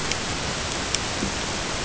{"label": "ambient", "recorder": "HydroMoth"}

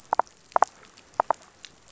{"label": "biophony", "recorder": "SoundTrap 500"}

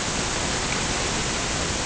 {"label": "ambient", "recorder": "HydroMoth"}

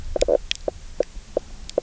{"label": "biophony, knock croak", "recorder": "SoundTrap 300"}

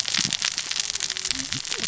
{"label": "biophony, cascading saw", "recorder": "SoundTrap 600 or HydroMoth"}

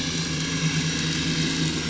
{"label": "anthrophony, boat engine", "recorder": "SoundTrap 500"}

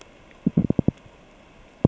{"label": "biophony, knock", "recorder": "SoundTrap 600 or HydroMoth"}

